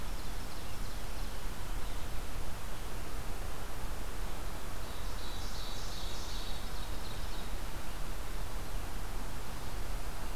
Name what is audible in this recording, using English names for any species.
Ovenbird, Scarlet Tanager